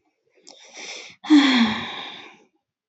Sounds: Sigh